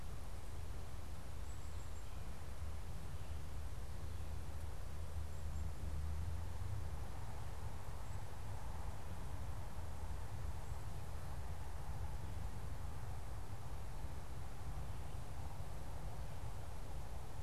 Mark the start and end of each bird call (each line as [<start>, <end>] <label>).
[1.22, 5.82] Black-capped Chickadee (Poecile atricapillus)